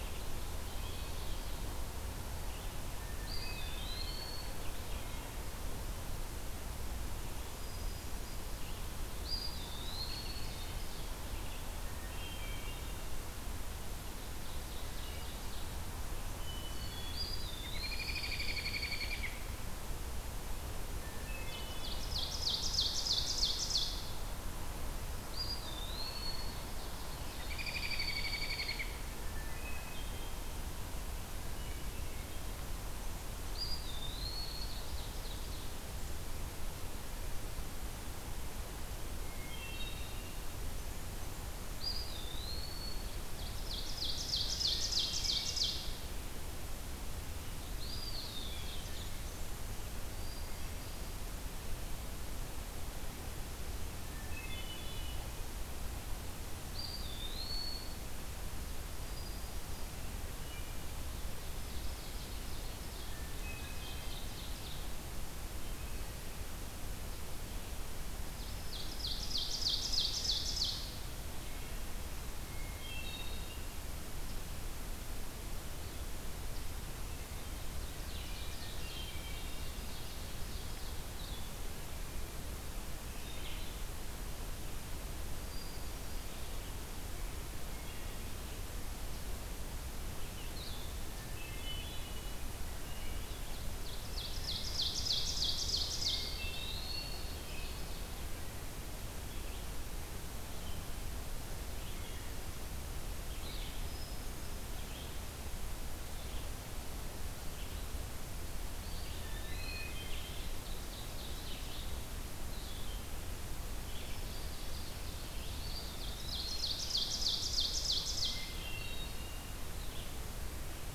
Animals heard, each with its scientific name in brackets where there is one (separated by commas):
Red-eyed Vireo (Vireo olivaceus), Hermit Thrush (Catharus guttatus), Eastern Wood-Pewee (Contopus virens), Blue-headed Vireo (Vireo solitarius), Ovenbird (Seiurus aurocapilla), American Robin (Turdus migratorius)